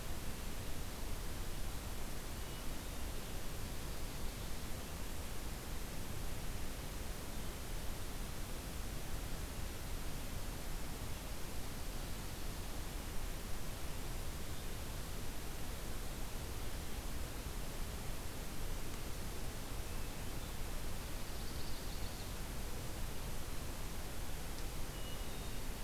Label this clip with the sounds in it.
Hermit Thrush, Ovenbird